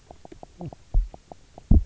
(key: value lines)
label: biophony, knock croak
recorder: SoundTrap 300